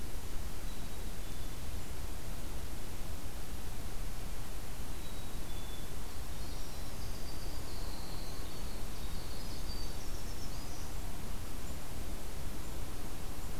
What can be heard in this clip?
Black-capped Chickadee, Winter Wren